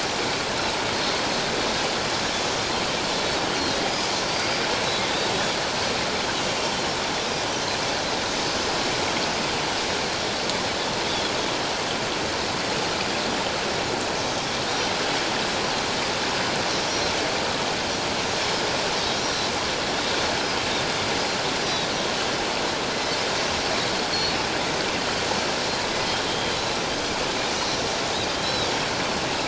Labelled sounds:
4.3	4.6	Pacific white-sided dolphin, 4.6 to 4.9 kHz
11.1	11.3	Pacific white-sided dolphin, 3.2 to 3.5 kHz
16.9	17.1	Pacific white-sided dolphin, 5.4 to 5.8 kHz
22.9	23.3	Pacific white-sided dolphin, 1.9 to 5.3 kHz
25.9	26.6	Pacific white-sided dolphin, 3.1 to 5.1 kHz
27.7	28.0	Pacific white-sided dolphin, 5.3 to 5.9 kHz
28.4	28.7	Pacific white-sided dolphin, 3.7 to 4.1 kHz

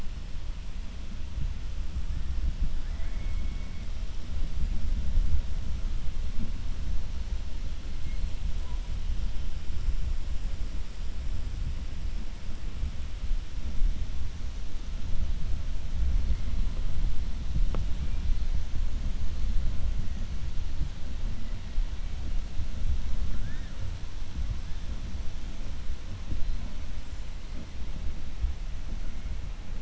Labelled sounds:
2.8	3.8	killer whale, 0.67 to 2.3 kHz

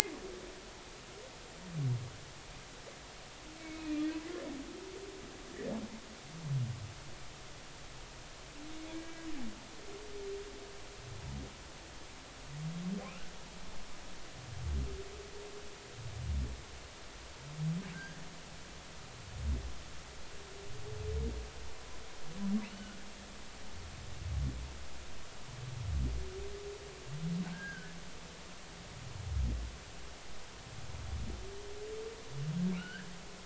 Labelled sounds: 3.7	4.0	humpback whale, 2.3 to 2.6 kHz
8.9	9.3	humpback whale, 1.6 to 1.7 kHz
17.9	18.3	humpback whale, 1.4 to 1.8 kHz
22.6	22.9	humpback whale, 2.5 to 3.1 kHz
27.5	27.9	humpback whale, 1.4 to 1.7 kHz
32.8	33.1	humpback whale, 1.3 to 3.1 kHz

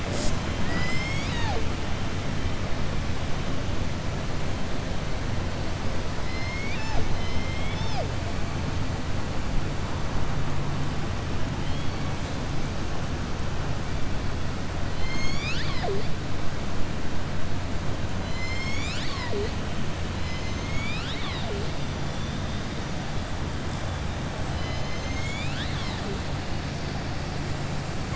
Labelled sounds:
0.5	1.6	killer whale, southern resident, 0.63 to 7.8 kHz
6.2	7.1	killer whale, southern resident, 0.44 to 7.1 kHz
24.5	26.1	killer whale, southern resident, 0.94 to 7.4 kHz

